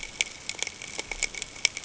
{"label": "ambient", "recorder": "HydroMoth"}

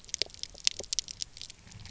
{"label": "biophony, pulse", "recorder": "SoundTrap 300"}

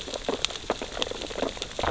{"label": "biophony, sea urchins (Echinidae)", "recorder": "SoundTrap 600 or HydroMoth"}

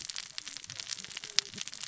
{"label": "biophony, cascading saw", "recorder": "SoundTrap 600 or HydroMoth"}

